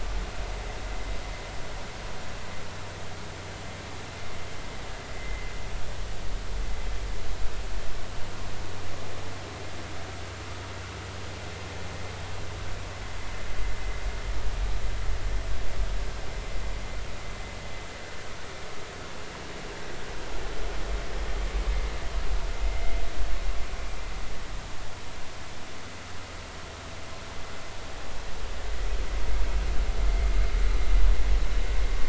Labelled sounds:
5.2	5.5	vessel noise, 2.0 to 2.1 kHz

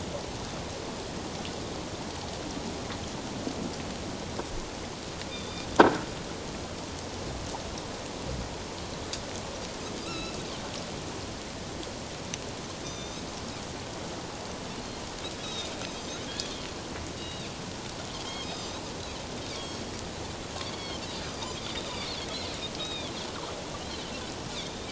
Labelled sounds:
5.3	5.7	Pacific white-sided dolphin, 3.5 to 3.8 kHz
10.0	10.4	Pacific white-sided dolphin, 1.2 to 4.1 kHz
12.8	13.3	Pacific white-sided dolphin, 3.5 to 6.3 kHz
15.4	16.6	Pacific white-sided dolphin, 3.2 to 6.5 kHz
17.2	18.8	Pacific white-sided dolphin, 2.3 to 6.6 kHz
20.6	21.6	Pacific white-sided dolphin, 2.1 to 4.9 kHz
21.9	23.1	Pacific white-sided dolphin, 2.2 to 4.8 kHz
24.5	24.8	Pacific white-sided dolphin, 3.3 to 3.9 kHz

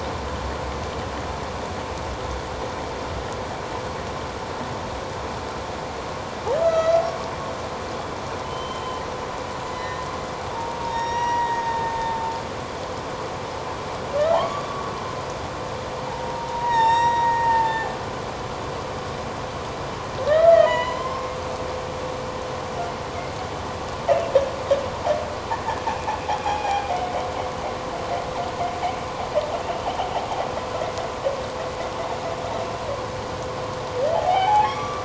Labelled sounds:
6.6	7.0	humpback whale, 1.2 to 6.0 kHz
8.4	9.0	humpback whale, 3.0 to 3.2 kHz
9.8	10.0	humpback whale, 1.8 to 1.9 kHz
10.5	12.3	humpback whale, 0.88 to 5.8 kHz
14.3	14.7	humpback whale, 0.78 to 1.2 kHz
16.1	17.9	humpback whale, 0.81 to 7.6 kHz
20.2	21.4	humpback whale, 0.91 to 4.2 kHz
26.4	26.8	humpback whale, 0.78 to 2.5 kHz
34.1	35.0	humpback whale, 0.78 to 5.8 kHz

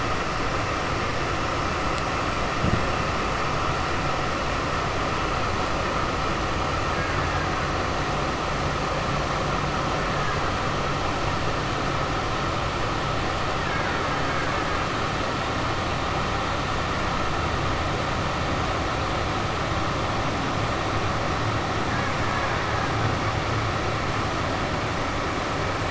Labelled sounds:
6.9	7.5	killer whale, Bigg's (transient), 0.84 to 2.2 kHz
13.6	14.7	killer whale, Bigg's (transient), 0.86 to 2.5 kHz

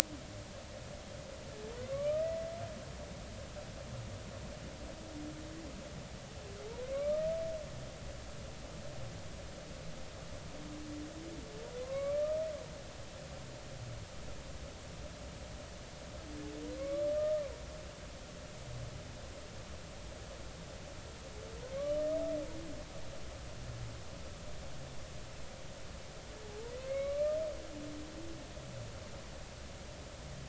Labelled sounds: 1.9	2.3	humpback whale, 1.1 to 1.3 kHz
6.8	7.3	humpback whale, 1.0 to 2.4 kHz
11.8	12.4	humpback whale, 0.99 to 2.4 kHz
16.8	17.4	humpback whale, 1.0 to 2.4 kHz
26.9	27.4	humpback whale, 1.1 to 2.3 kHz

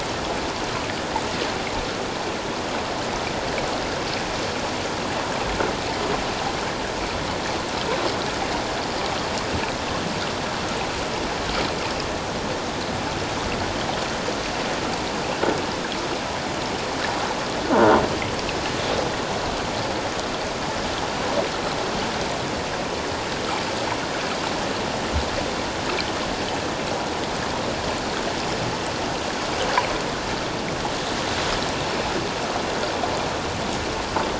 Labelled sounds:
17.7	18.0	croaking sound likely from a nearby submerged object, 1.4 to 1.6 kHz

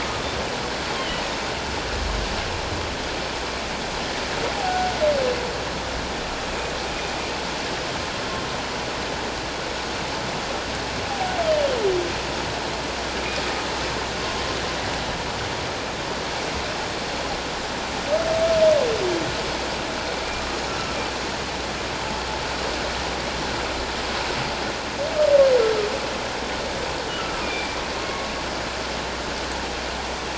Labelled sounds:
4.6	4.9	humpback whale, 0.78 to 0.84 kHz
11.4	11.7	humpback whale, 2.8 to 3.3 kHz
27.4	27.8	humpback whale, 2.2 to 2.5 kHz

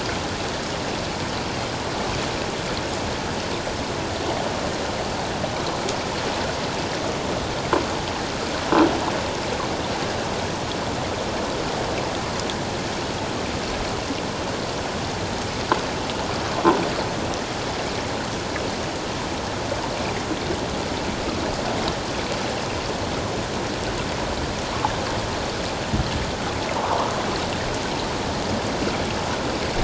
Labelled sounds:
26.8	27.1	water noise, 0.81 to 1.2 kHz

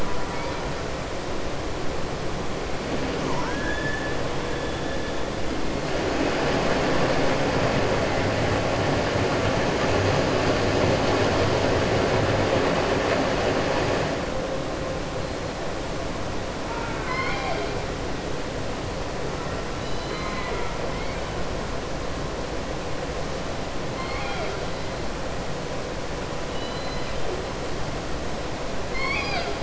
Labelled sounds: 3.2	4.1	killer whale, southern resident, 0.88 to 2.0 kHz
16.6	17.7	killer whale, southern resident, 0.66 to 5.3 kHz
19.7	20.7	killer whale, southern resident, 0.43 to 5.0 kHz
26.4	27.1	killer whale, southern resident, 2.0 to 5.0 kHz
28.8	29.6	killer whale, southern resident, 0.70 to 5.5 kHz

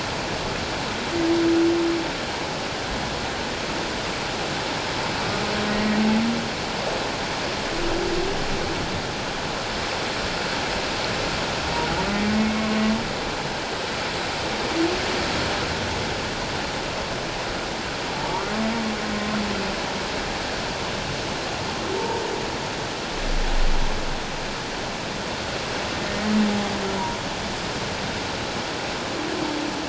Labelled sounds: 5.7	6.0	humpback whale, 1.8 to 2.0 kHz
12.5	12.8	humpback whale, 1.0 to 1.1 kHz
18.2	18.5	humpback whale, 1.1 to 1.2 kHz
22.0	22.2	humpback whale, 0.84 to 0.97 kHz
26.1	26.3	humpback whale, 1.8 to 2.0 kHz

